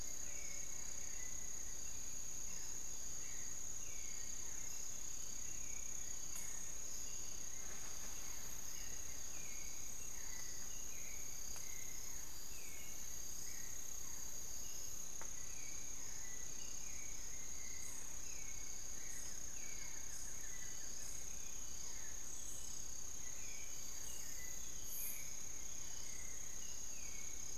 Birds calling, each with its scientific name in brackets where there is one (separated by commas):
Long-winged Antwren (Myrmotherula longipennis), Buff-throated Woodcreeper (Xiphorhynchus guttatus), Hauxwell's Thrush (Turdus hauxwelli), unidentified bird, Barred Forest-Falcon (Micrastur ruficollis)